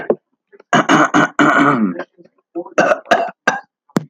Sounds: Cough